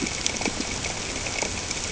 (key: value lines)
label: ambient
recorder: HydroMoth